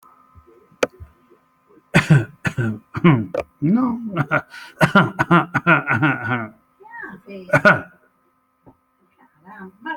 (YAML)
expert_labels:
- quality: poor
  cough_type: dry
  dyspnea: false
  wheezing: false
  stridor: false
  choking: false
  congestion: false
  nothing: false
  diagnosis: healthy cough
  severity: pseudocough/healthy cough
age: 55
gender: male
respiratory_condition: false
fever_muscle_pain: false
status: COVID-19